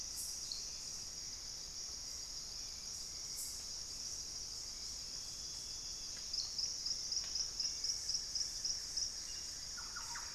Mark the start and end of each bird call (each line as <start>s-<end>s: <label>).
0.0s-10.3s: Hauxwell's Thrush (Turdus hauxwelli)
7.1s-10.3s: Buff-throated Woodcreeper (Xiphorhynchus guttatus)
9.6s-10.3s: Thrush-like Wren (Campylorhynchus turdinus)